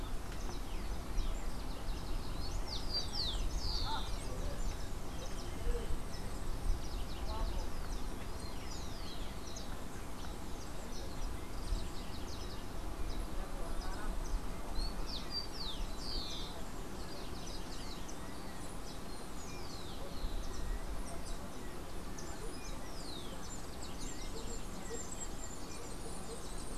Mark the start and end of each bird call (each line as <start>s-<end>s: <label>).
2.2s-4.2s: Rufous-collared Sparrow (Zonotrichia capensis)
14.5s-16.7s: Rufous-collared Sparrow (Zonotrichia capensis)